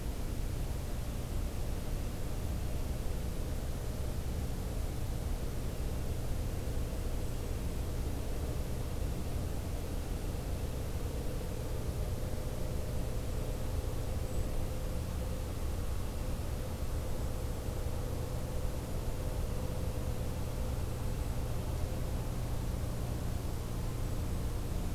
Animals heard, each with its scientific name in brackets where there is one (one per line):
Golden-crowned Kinglet (Regulus satrapa)